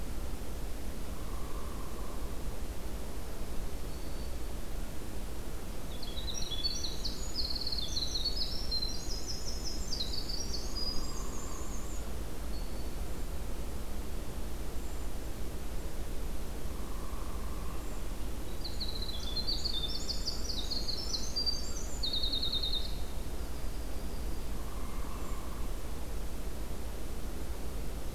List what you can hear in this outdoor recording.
Hairy Woodpecker, Black-throated Green Warbler, Winter Wren, Brown Creeper, American Crow, Hermit Thrush